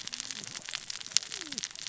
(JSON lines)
{"label": "biophony, cascading saw", "recorder": "SoundTrap 600 or HydroMoth"}